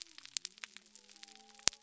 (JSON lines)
{"label": "biophony", "recorder": "SoundTrap 300"}